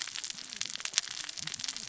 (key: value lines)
label: biophony, cascading saw
recorder: SoundTrap 600 or HydroMoth